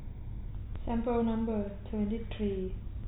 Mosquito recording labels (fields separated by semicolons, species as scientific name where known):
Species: no mosquito; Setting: cup